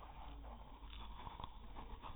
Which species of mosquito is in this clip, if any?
no mosquito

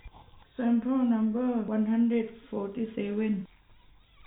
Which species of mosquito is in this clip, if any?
no mosquito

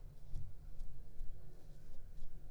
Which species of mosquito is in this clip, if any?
Aedes aegypti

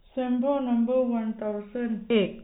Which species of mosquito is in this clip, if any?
no mosquito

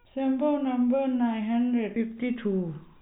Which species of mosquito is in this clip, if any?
no mosquito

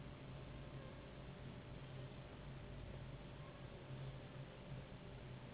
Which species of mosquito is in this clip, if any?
Anopheles gambiae s.s.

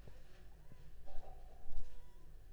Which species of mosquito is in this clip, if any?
Anopheles funestus s.l.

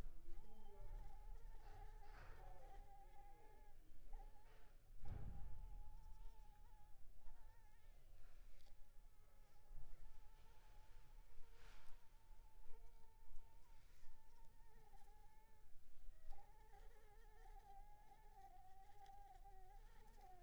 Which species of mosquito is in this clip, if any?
Anopheles arabiensis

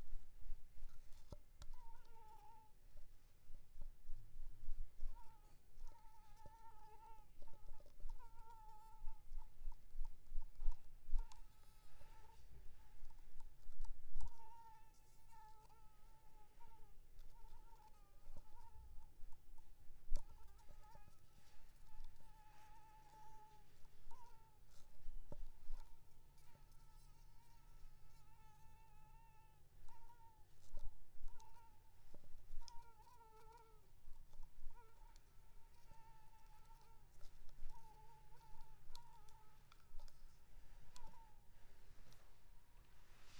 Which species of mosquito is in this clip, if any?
Anopheles squamosus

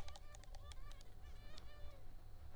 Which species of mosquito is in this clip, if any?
Culex pipiens complex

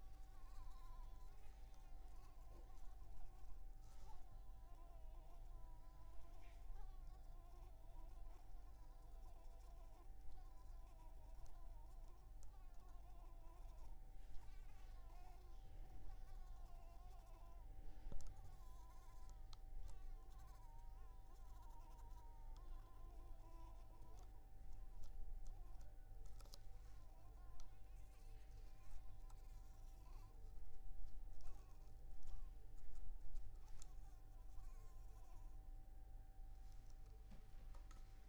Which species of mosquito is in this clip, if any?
Anopheles maculipalpis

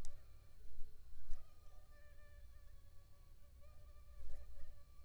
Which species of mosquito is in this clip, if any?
Aedes aegypti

